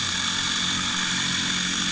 {"label": "anthrophony, boat engine", "recorder": "HydroMoth"}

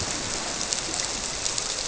{"label": "biophony", "recorder": "SoundTrap 300"}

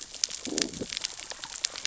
{"label": "biophony, growl", "recorder": "SoundTrap 600 or HydroMoth"}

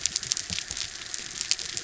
{"label": "biophony", "recorder": "SoundTrap 300"}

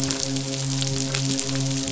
{"label": "biophony, midshipman", "recorder": "SoundTrap 500"}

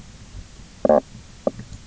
{"label": "biophony, knock croak", "recorder": "SoundTrap 300"}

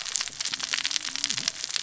{"label": "biophony, cascading saw", "recorder": "SoundTrap 600 or HydroMoth"}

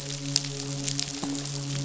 {"label": "biophony, midshipman", "recorder": "SoundTrap 500"}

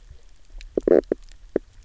{"label": "biophony, knock croak", "recorder": "SoundTrap 300"}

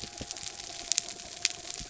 {"label": "biophony", "recorder": "SoundTrap 300"}
{"label": "anthrophony, mechanical", "recorder": "SoundTrap 300"}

